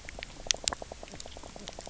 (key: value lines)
label: biophony, knock croak
recorder: SoundTrap 300